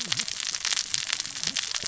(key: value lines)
label: biophony, cascading saw
recorder: SoundTrap 600 or HydroMoth